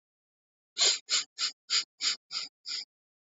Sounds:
Sniff